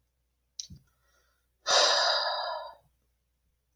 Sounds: Sigh